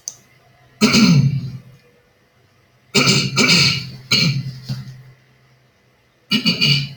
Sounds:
Throat clearing